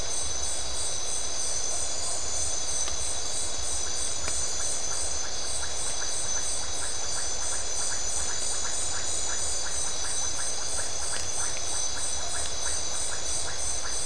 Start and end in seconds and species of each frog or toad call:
3.2	14.0	Iporanga white-lipped frog

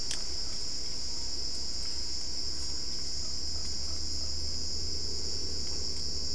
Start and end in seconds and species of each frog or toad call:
none

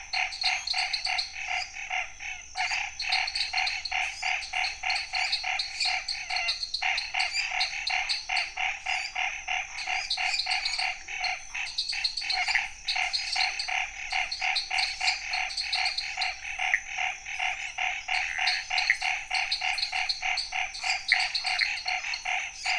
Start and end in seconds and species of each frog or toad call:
0.0	1.7	lesser tree frog
0.0	1.7	dwarf tree frog
0.0	22.7	Chaco tree frog
2.5	16.3	lesser tree frog
2.5	16.3	dwarf tree frog
18.2	22.7	lesser tree frog
18.2	22.7	dwarf tree frog

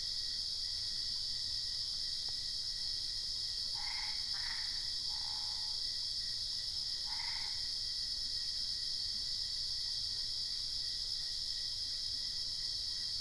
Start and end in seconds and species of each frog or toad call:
3.7	7.6	Boana albopunctata

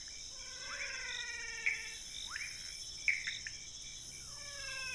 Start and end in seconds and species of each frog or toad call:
0.0	4.9	rufous frog
0.0	4.9	Pithecopus azureus
0.3	2.5	menwig frog
4.2	4.9	menwig frog

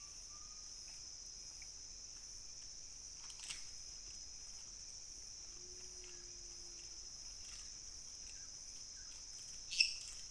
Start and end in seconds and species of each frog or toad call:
9.6	10.3	lesser tree frog

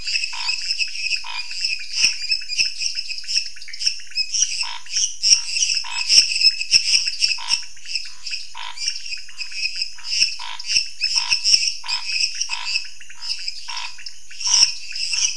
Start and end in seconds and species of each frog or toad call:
0.0	2.2	Scinax fuscovarius
0.0	15.3	lesser tree frog
0.0	15.3	dwarf tree frog
0.0	15.3	pointedbelly frog
4.6	15.3	Scinax fuscovarius

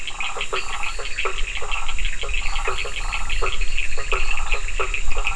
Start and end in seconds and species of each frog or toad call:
0.0	5.3	Bischoff's tree frog
0.0	5.3	blacksmith tree frog
0.0	5.3	Burmeister's tree frog
0.0	5.3	Cochran's lime tree frog
0.5	4.7	fine-lined tree frog

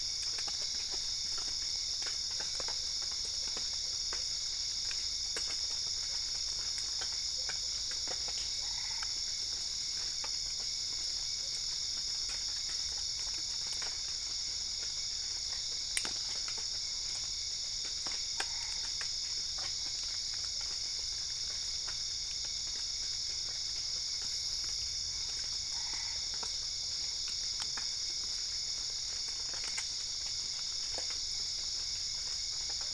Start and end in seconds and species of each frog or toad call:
8.4	9.3	Boana albopunctata
17.9	19.2	Boana albopunctata
25.5	26.4	Boana albopunctata

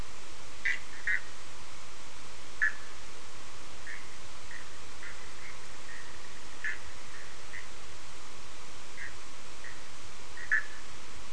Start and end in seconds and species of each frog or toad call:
0.6	1.3	Bischoff's tree frog
2.6	2.8	Bischoff's tree frog
3.8	6.3	Bischoff's tree frog
6.6	6.8	Bischoff's tree frog
7.1	7.7	Bischoff's tree frog
9.0	9.2	Bischoff's tree frog
10.3	10.8	Bischoff's tree frog

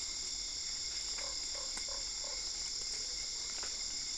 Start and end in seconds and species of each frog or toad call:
1.2	2.5	Usina tree frog

